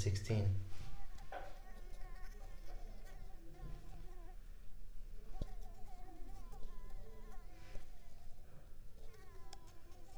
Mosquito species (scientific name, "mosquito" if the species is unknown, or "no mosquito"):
Mansonia uniformis